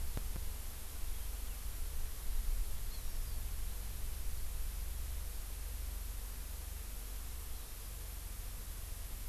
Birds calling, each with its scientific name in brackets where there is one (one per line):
Hawaii Amakihi (Chlorodrepanis virens)